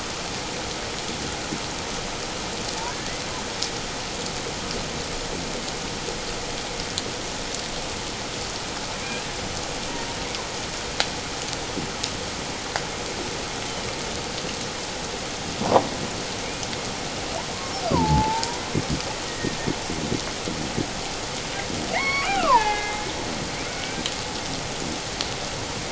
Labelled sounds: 9.0	9.3	killer whale, Bigg's (transient), 2.2 to 2.6 kHz
17.9	19.6	killer whale, Bigg's (transient), 0.78 to 2.0 kHz
21.9	23.0	killer whale, Bigg's (transient), 0.78 to 5.6 kHz
23.7	24.1	killer whale, Bigg's (transient), 1.4 to 2.4 kHz

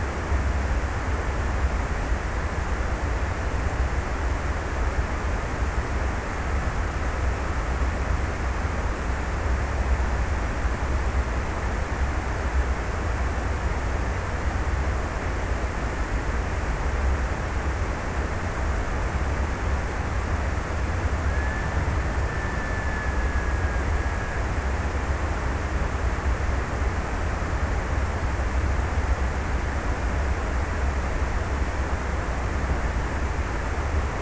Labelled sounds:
20.9	24.7	killer whale, Bigg's (transient), 1.3 to 2.2 kHz

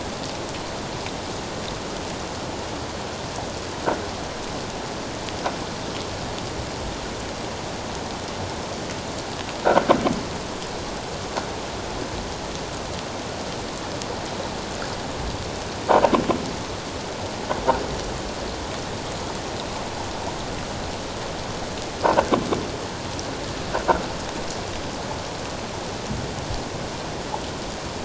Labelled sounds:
22.0	22.4	croaking sound likely from a nearby submerged object, 1.4 to 1.6 kHz

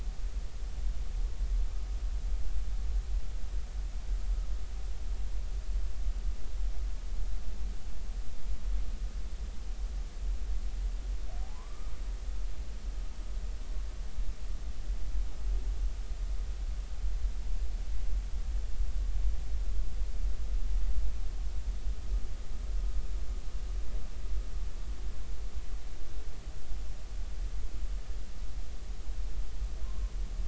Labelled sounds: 11.5	11.9	humpback whale, 0.96 to 1.3 kHz
29.8	30.1	humpback whale, 0.99 to 1.2 kHz

